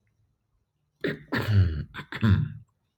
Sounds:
Throat clearing